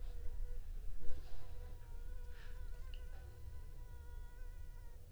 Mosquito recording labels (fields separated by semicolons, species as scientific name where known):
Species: Anopheles funestus s.s.; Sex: female; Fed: unfed; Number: one; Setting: cup